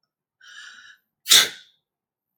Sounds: Sneeze